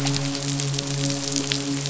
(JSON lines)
{"label": "biophony, midshipman", "recorder": "SoundTrap 500"}